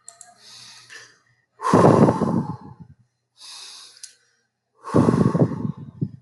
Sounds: Sigh